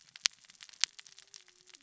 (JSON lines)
{"label": "biophony, cascading saw", "recorder": "SoundTrap 600 or HydroMoth"}